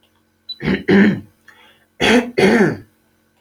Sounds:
Throat clearing